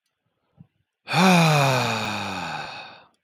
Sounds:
Sigh